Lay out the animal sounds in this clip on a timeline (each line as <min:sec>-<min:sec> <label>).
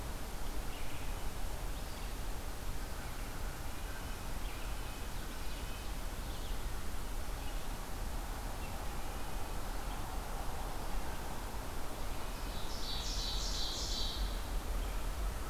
0:00.0-0:15.5 Red-eyed Vireo (Vireo olivaceus)
0:03.4-0:06.0 Red-breasted Nuthatch (Sitta canadensis)
0:12.2-0:14.6 Ovenbird (Seiurus aurocapilla)